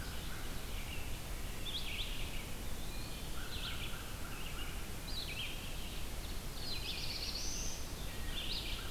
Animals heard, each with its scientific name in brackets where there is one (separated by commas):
Black-throated Blue Warbler (Setophaga caerulescens), Red-eyed Vireo (Vireo olivaceus), American Crow (Corvus brachyrhynchos), Eastern Wood-Pewee (Contopus virens), Ovenbird (Seiurus aurocapilla)